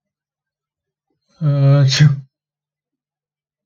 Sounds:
Sneeze